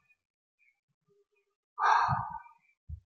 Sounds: Sigh